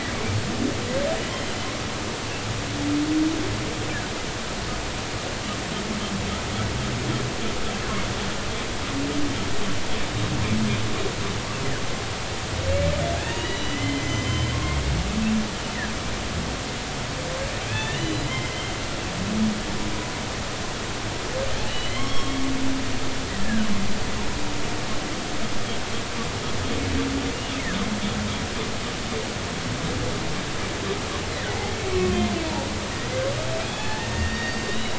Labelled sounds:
1.3	1.6	humpback whale, 2.9 to 3.2 kHz
13.2	14.8	humpback whale, 1.0 to 6.1 kHz
17.7	18.3	humpback whale, 1.6 to 4.0 kHz
21.7	22.4	humpback whale, 0.99 to 5.5 kHz
23.4	23.7	humpback whale, 1.4 to 1.9 kHz
32.9	34.9	humpback whale, 0.80 to 5.6 kHz

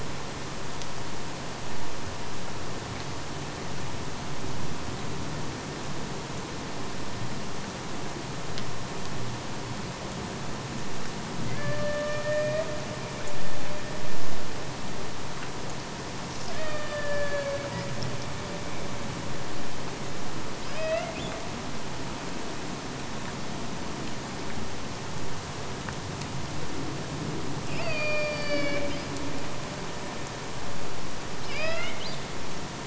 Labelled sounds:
11.4	12.8	killer whale, Bigg's (transient), AT1 transient, 0.32 to 5.5 kHz
16.4	17.9	killer whale, Bigg's (transient), AT1 transient, 0.44 to 5.5 kHz
20.6	21.5	killer whale, Bigg's (transient), AT1 transient, 0.53 to 5.2 kHz
27.7	29.1	killer whale, Bigg's (transient), AT1 transient, 0.44 to 5.8 kHz
31.2	32.3	killer whale, Bigg's (transient), AT1 transient, 0.55 to 5.5 kHz

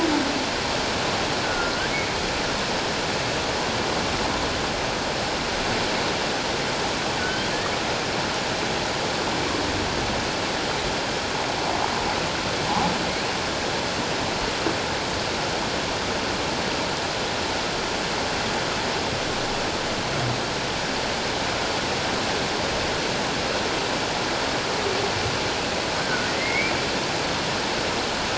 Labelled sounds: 1.4	1.7	humpback whale, 1.3 to 1.5 kHz
7.2	7.5	humpback whale, 1.4 to 1.6 kHz
26.0	26.7	humpback whale, 1.3 to 2.5 kHz

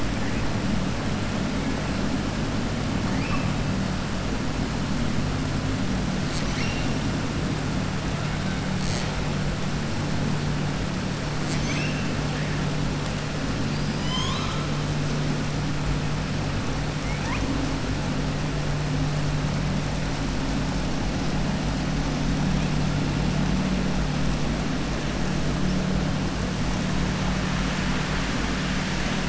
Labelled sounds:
3.1	3.5	killer whale, southern resident, 1.1 to 2.7 kHz
13.6	14.6	killer whale, southern resident, 1.0 to 7.4 kHz

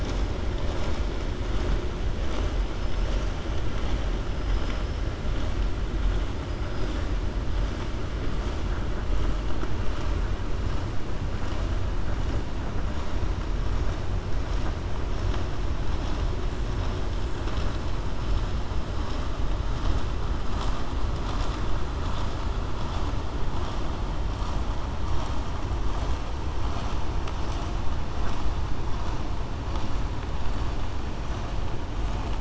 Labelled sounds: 4.4	5.0	killer whale, 5.0 to 5.9 kHz

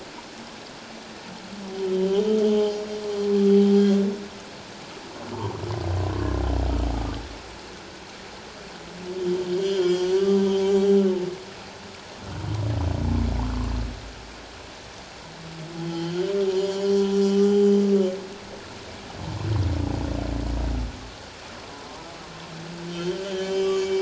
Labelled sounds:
1.9	2.8	humpback whale, 2.9 to 3.4 kHz
6.9	7.2	humpback whale, 1.1 to 1.3 kHz
9.5	10.2	humpback whale, 3.1 to 7.1 kHz
10.5	10.8	humpback whale, 0.78 to 0.84 kHz
15.8	17.6	humpback whale, 0.91 to 4.4 kHz
22.9	24.0	humpback whale, 1.1 to 5.1 kHz

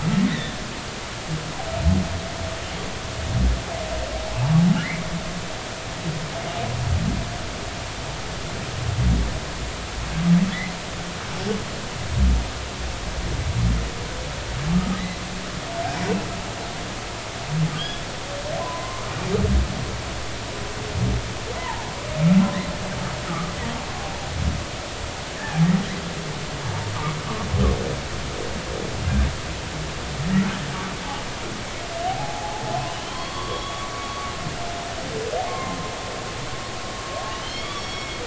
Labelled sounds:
0.2	0.6	humpback whale, 1.7 to 4.0 kHz
4.8	5.0	humpback whale, 1.3 to 2.3 kHz
14.7	15.2	humpback whale, 1.1 to 2.1 kHz
17.8	18.0	humpback whale, 1.4 to 3.4 kHz
18.6	19.0	humpback whale, 0.96 to 1.1 kHz
21.5	21.9	humpback whale, 0.80 to 2.1 kHz
23.3	23.5	humpback whale, 1.1 to 1.4 kHz
32.0	33.9	humpback whale, 0.80 to 4.5 kHz
35.5	35.8	humpback whale, 1.0 to 1.1 kHz
37.4	38.2	humpback whale, 2.1 to 5.7 kHz

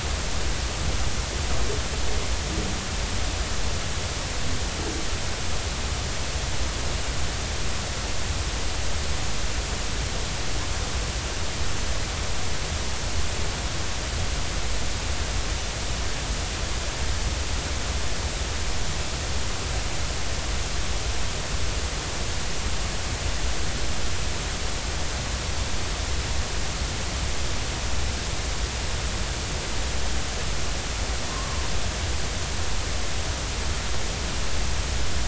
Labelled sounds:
31.3	31.6	humpback whale, 0.93 to 1.2 kHz

